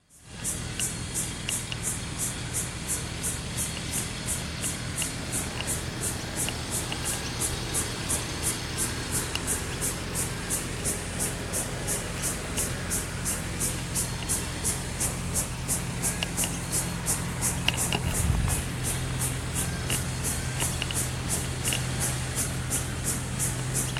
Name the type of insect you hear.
cicada